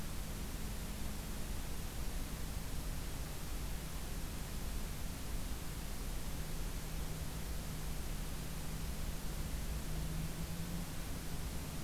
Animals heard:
forest ambience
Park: Acadia National Park